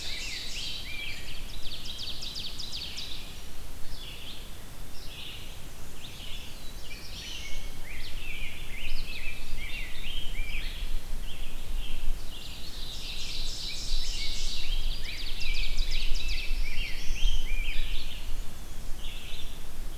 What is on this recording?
Ovenbird, Rose-breasted Grosbeak, Red-eyed Vireo, Black-and-white Warbler, Black-throated Blue Warbler